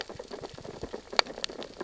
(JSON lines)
{"label": "biophony, sea urchins (Echinidae)", "recorder": "SoundTrap 600 or HydroMoth"}